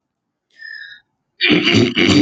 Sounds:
Throat clearing